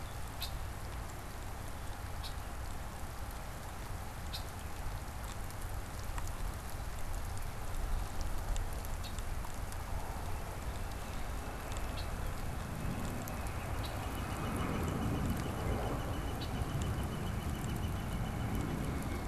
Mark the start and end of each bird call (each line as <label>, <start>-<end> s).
Red-winged Blackbird (Agelaius phoeniceus), 0.0-9.3 s
Red-winged Blackbird (Agelaius phoeniceus), 11.8-12.2 s
Northern Flicker (Colaptes auratus), 13.2-19.2 s
Red-winged Blackbird (Agelaius phoeniceus), 13.8-14.0 s
Red-winged Blackbird (Agelaius phoeniceus), 16.3-16.6 s